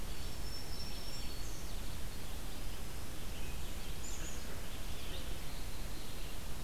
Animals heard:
Red-eyed Vireo (Vireo olivaceus), Black-capped Chickadee (Poecile atricapillus), Black-throated Green Warbler (Setophaga virens), Eastern Wood-Pewee (Contopus virens)

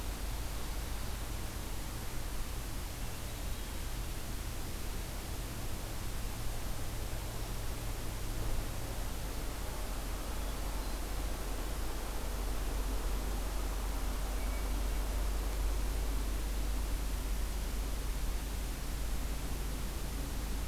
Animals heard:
Hermit Thrush (Catharus guttatus)

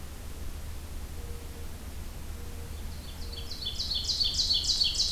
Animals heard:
Ovenbird (Seiurus aurocapilla)

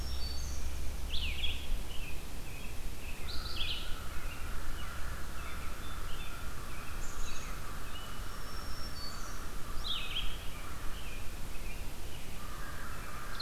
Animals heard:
Song Sparrow (Melospiza melodia), American Crow (Corvus brachyrhynchos), Red-eyed Vireo (Vireo olivaceus), Black-throated Green Warbler (Setophaga virens), Blue-headed Vireo (Vireo solitarius)

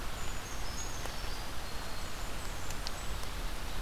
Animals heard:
Blackburnian Warbler (Setophaga fusca), Brown Creeper (Certhia americana), Black-throated Green Warbler (Setophaga virens)

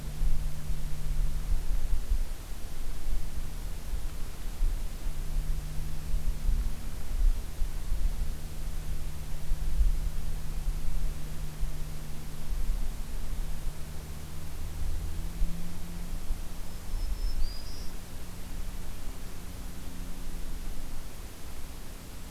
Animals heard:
Black-throated Green Warbler (Setophaga virens)

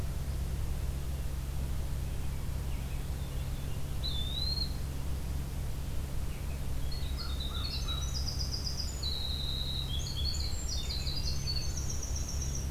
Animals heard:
American Robin (Turdus migratorius), American Crow (Corvus brachyrhynchos), Eastern Wood-Pewee (Contopus virens), Winter Wren (Troglodytes hiemalis)

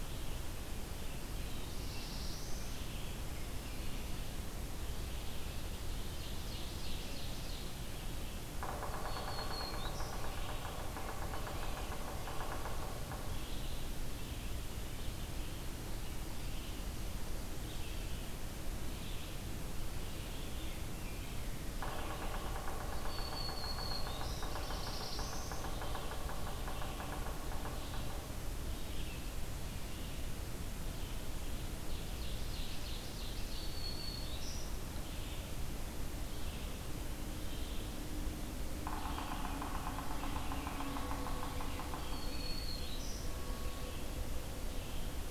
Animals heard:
Yellow-bellied Sapsucker (Sphyrapicus varius), Black-throated Blue Warbler (Setophaga caerulescens), Ovenbird (Seiurus aurocapilla), Black-throated Green Warbler (Setophaga virens), Red-eyed Vireo (Vireo olivaceus)

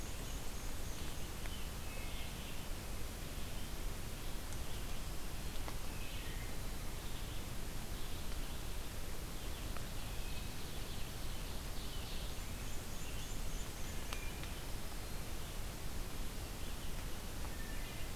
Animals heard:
Red-eyed Vireo (Vireo olivaceus), Wood Thrush (Hylocichla mustelina), Black-and-white Warbler (Mniotilta varia), Ovenbird (Seiurus aurocapilla)

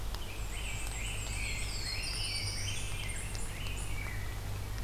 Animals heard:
Black-throated Blue Warbler (Setophaga caerulescens), Rose-breasted Grosbeak (Pheucticus ludovicianus), Black-and-white Warbler (Mniotilta varia)

